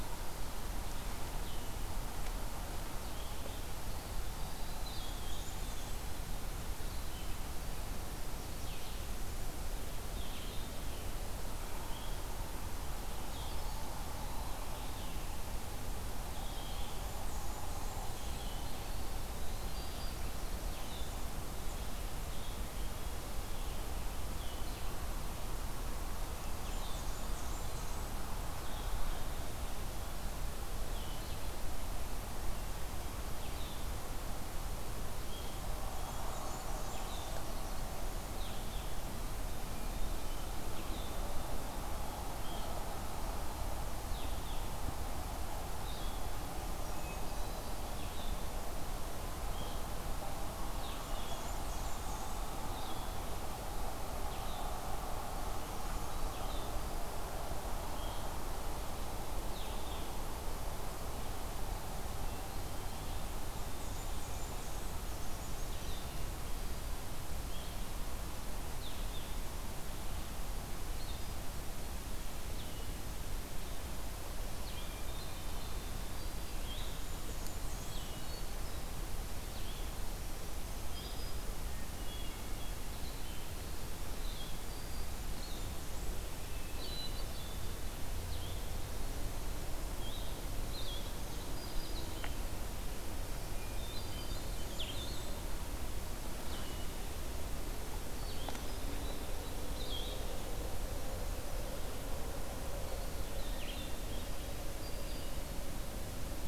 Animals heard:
Red-eyed Vireo (Vireo olivaceus), Blue-headed Vireo (Vireo solitarius), Brown Creeper (Certhia americana), Black-throated Green Warbler (Setophaga virens), Blackburnian Warbler (Setophaga fusca), Hermit Thrush (Catharus guttatus)

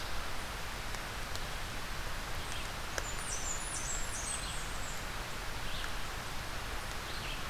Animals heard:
Blackburnian Warbler (Setophaga fusca), Red-eyed Vireo (Vireo olivaceus)

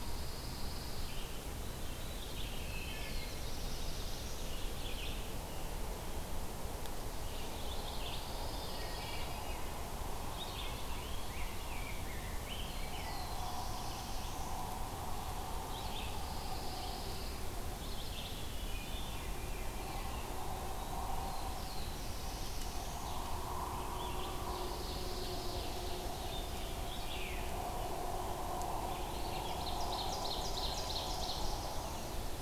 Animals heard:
Veery (Catharus fuscescens), Wood Thrush (Hylocichla mustelina), Black-throated Blue Warbler (Setophaga caerulescens), Red-eyed Vireo (Vireo olivaceus), Ovenbird (Seiurus aurocapilla), Rose-breasted Grosbeak (Pheucticus ludovicianus), Pine Warbler (Setophaga pinus)

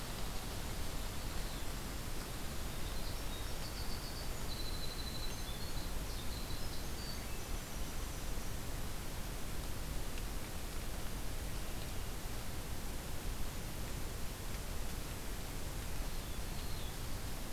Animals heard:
Golden-crowned Kinglet (Regulus satrapa), Winter Wren (Troglodytes hiemalis), Black-throated Blue Warbler (Setophaga caerulescens)

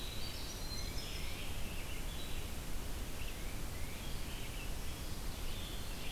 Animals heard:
Red-eyed Vireo (Vireo olivaceus), Winter Wren (Troglodytes hiemalis), Tufted Titmouse (Baeolophus bicolor)

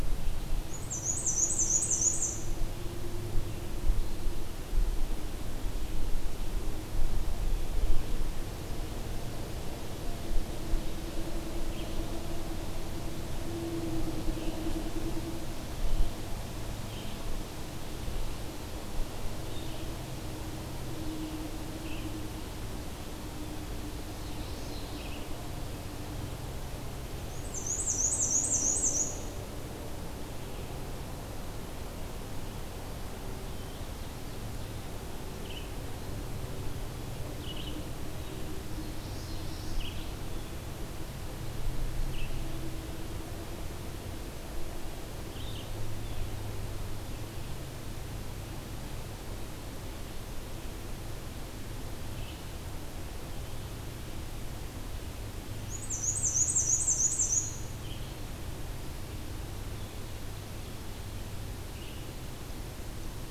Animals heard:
Black-and-white Warbler (Mniotilta varia), Red-eyed Vireo (Vireo olivaceus), Common Yellowthroat (Geothlypis trichas)

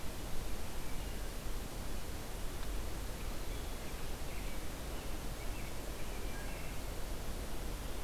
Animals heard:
Wood Thrush (Hylocichla mustelina), American Robin (Turdus migratorius)

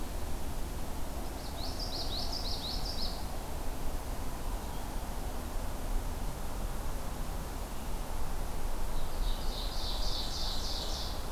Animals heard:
Ovenbird (Seiurus aurocapilla), Common Yellowthroat (Geothlypis trichas)

